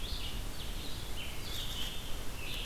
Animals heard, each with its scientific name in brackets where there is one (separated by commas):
Scarlet Tanager (Piranga olivacea), Red-eyed Vireo (Vireo olivaceus)